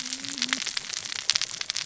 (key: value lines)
label: biophony, cascading saw
recorder: SoundTrap 600 or HydroMoth